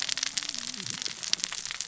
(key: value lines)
label: biophony, cascading saw
recorder: SoundTrap 600 or HydroMoth